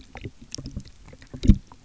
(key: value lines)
label: geophony, waves
recorder: SoundTrap 300